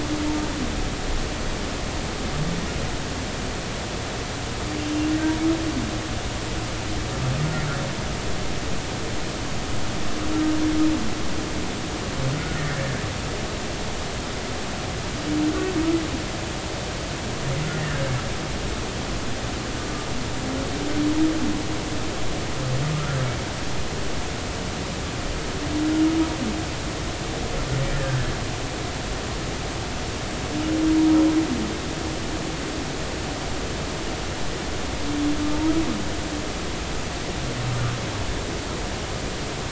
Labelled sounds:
17.7	18.0	humpback whale, 1.5 to 2.0 kHz
22.9	23.3	humpback whale, 1.2 to 1.6 kHz
27.9	28.3	humpback whale, 1.5 to 1.9 kHz

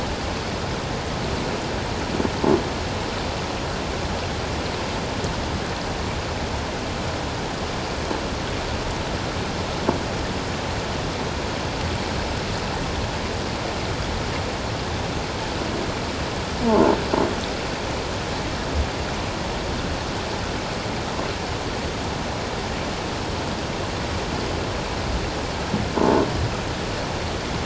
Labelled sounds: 26.0	26.2	croaking sound likely from a nearby submerged object, 0.84 to 1.1 kHz

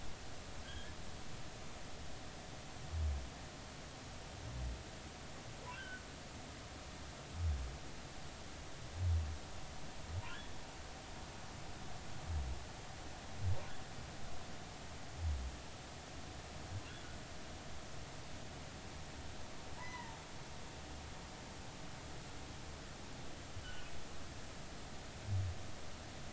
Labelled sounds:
0.6	0.9	humpback whale, 1.5 to 1.8 kHz
5.7	6.0	humpback whale, 1.3 to 1.7 kHz
10.2	10.5	humpback whale, 2.6 to 3.5 kHz
19.8	20.2	humpback whale, 0.83 to 2.1 kHz
23.6	23.9	humpback whale, 1.4 to 3.1 kHz

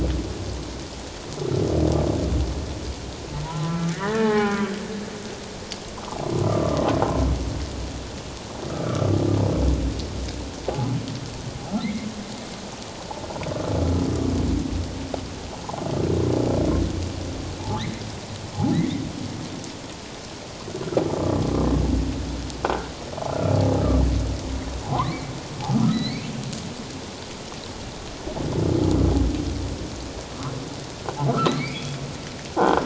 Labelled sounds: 3.4	4.8	humpback whale, 0.78 to 2.0 kHz
6.4	6.8	humpback whale, 1.1 to 1.4 kHz
8.7	9.2	humpback whale, 1.1 to 1.5 kHz
11.8	12.1	humpback whale, 1.9 to 2.3 kHz
18.7	19.0	humpback whale, 1.7 to 2.2 kHz
22.6	22.9	croaking sound likely from a nearby submerged object, 1.3 to 1.6 kHz
24.9	26.3	humpback whale, 0.94 to 4.7 kHz
31.3	32.0	humpback whale, 1.1 to 4.4 kHz
32.6	32.8	croaking sound likely from a nearby submerged object, 1.4 to 1.6 kHz

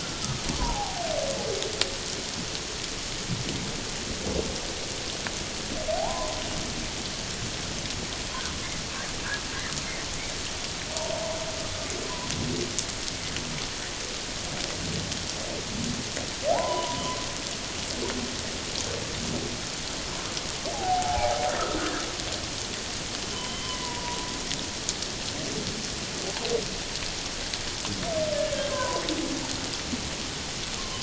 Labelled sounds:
0.0	1.0	humpback whale, 0.78 to 1.5 kHz
5.9	6.4	humpback whale, 0.78 to 1.1 kHz
16.5	17.0	humpback whale, 0.78 to 1.1 kHz
20.7	21.4	humpback whale, 0.78 to 1.0 kHz
23.3	24.3	humpback whale, 0.88 to 3.2 kHz
28.5	29.0	humpback whale, 0.94 to 1.7 kHz

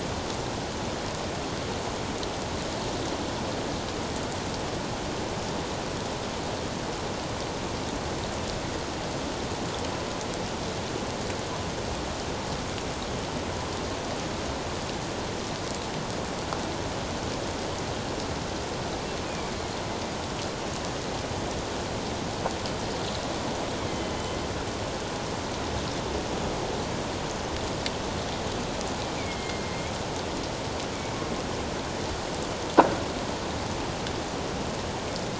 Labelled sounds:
19.3	19.5	killer whale, northern resident, A clan, AA subclan, A04 pod, call N04, 2.2 to 2.5 kHz
24.1	24.4	killer whale, northern resident, A clan, AA subclan, A04 pod, 3.0 to 3.1 kHz
29.2	29.9	killer whale, northern resident, A clan, AA subclan, A04 pod, 2.0 to 2.5 kHz

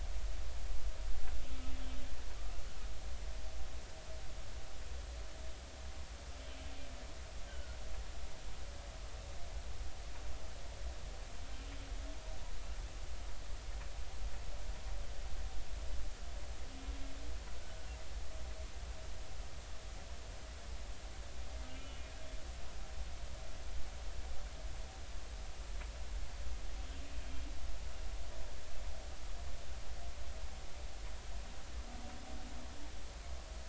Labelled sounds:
7.5	7.8	humpback whale, 1.4 to 1.6 kHz
17.6	17.9	humpback whale, 1.4 to 1.5 kHz
22.7	23.0	humpback whale, 2.8 to 3.0 kHz

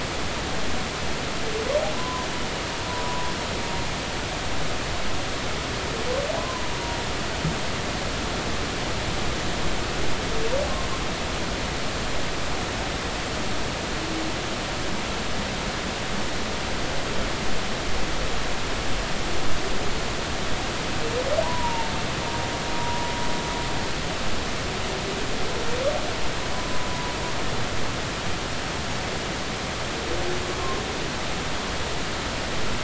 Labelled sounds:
1.9	2.3	humpback whale, 0.96 to 1.1 kHz
3.0	3.3	humpback whale, 0.96 to 1.1 kHz
6.4	6.6	humpback whale, 0.96 to 1.1 kHz
21.4	21.9	humpback whale, 0.80 to 1.0 kHz
22.8	23.0	humpback whale, 0.93 to 1.0 kHz
26.5	26.8	humpback whale, 0.96 to 1.1 kHz

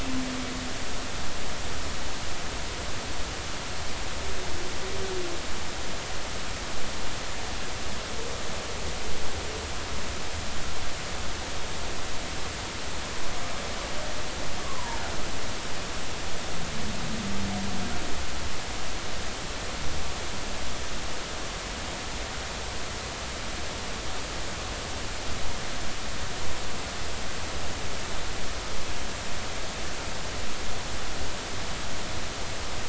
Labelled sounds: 14.6	15.0	humpback whale, 0.86 to 1.2 kHz

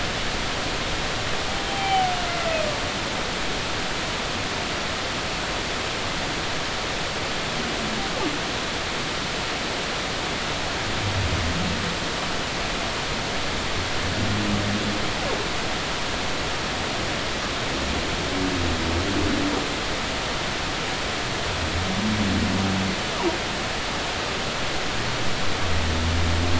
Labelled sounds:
1.7	2.1	humpback whale, 0.80 to 3.2 kHz

